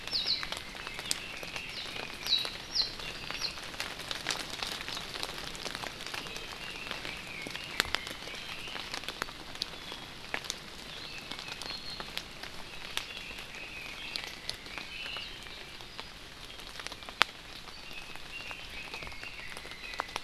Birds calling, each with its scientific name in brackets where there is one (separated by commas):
Red-billed Leiothrix (Leiothrix lutea), Warbling White-eye (Zosterops japonicus)